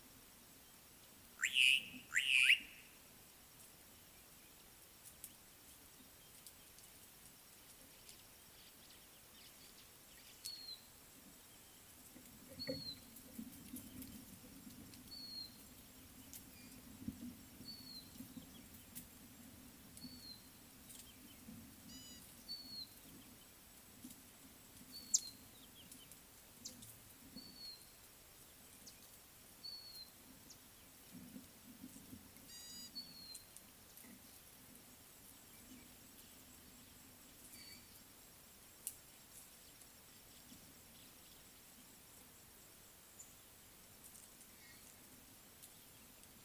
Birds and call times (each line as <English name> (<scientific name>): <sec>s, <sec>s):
Slate-colored Boubou (Laniarius funebris): 1.7s
Red-backed Scrub-Robin (Cercotrichas leucophrys): 10.6s, 12.8s, 15.3s, 17.9s, 20.3s, 22.6s, 25.1s, 29.9s, 33.1s
Gray-backed Camaroptera (Camaroptera brevicaudata): 22.1s, 32.7s